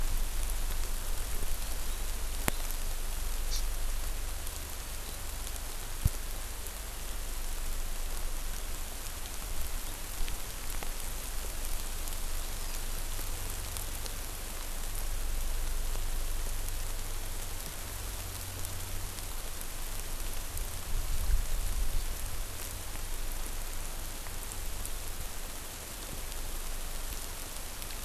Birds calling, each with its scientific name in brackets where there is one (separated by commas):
Hawaii Amakihi (Chlorodrepanis virens)